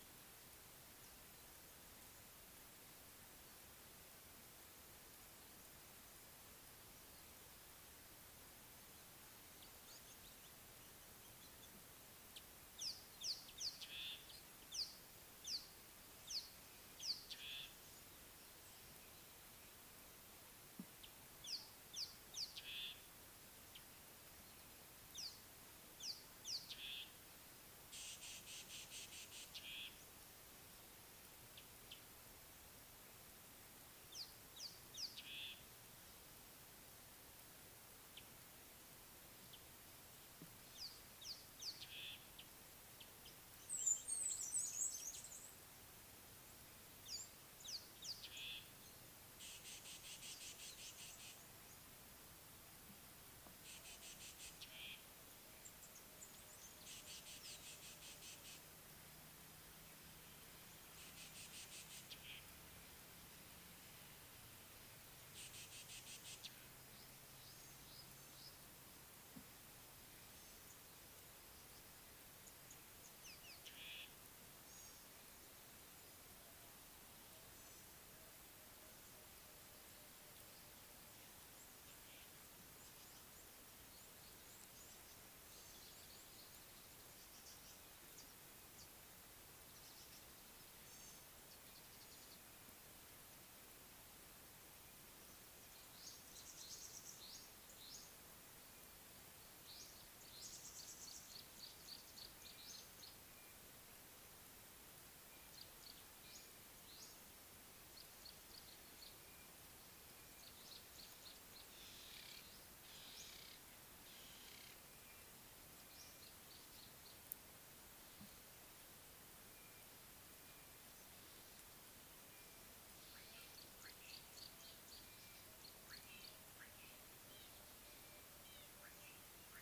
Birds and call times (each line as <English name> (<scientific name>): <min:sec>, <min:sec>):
Rattling Cisticola (Cisticola chiniana): 0:14.9, 0:22.0, 0:28.7, 0:34.5, 0:41.4, 0:48.1, 0:57.7, 1:01.6, 1:05.7, 1:13.5
Red-cheeked Cordonbleu (Uraeginthus bengalus): 0:56.2
Gray-backed Camaroptera (Camaroptera brevicaudata): 1:31.0, 1:51.0
Tawny-flanked Prinia (Prinia subflava): 1:36.6, 1:40.8
Ring-necked Dove (Streptopelia capicola): 1:53.3
Red-fronted Barbet (Tricholaema diademata): 2:07.3